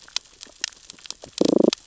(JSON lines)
{"label": "biophony, damselfish", "recorder": "SoundTrap 600 or HydroMoth"}